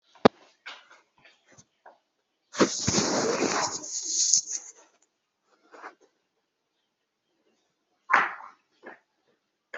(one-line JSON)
{"expert_labels": [{"quality": "no cough present", "cough_type": "unknown", "dyspnea": false, "wheezing": false, "stridor": false, "choking": false, "congestion": false, "nothing": true, "diagnosis": "healthy cough", "severity": "unknown"}], "gender": "female", "respiratory_condition": false, "fever_muscle_pain": false, "status": "COVID-19"}